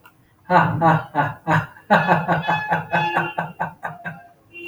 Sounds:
Laughter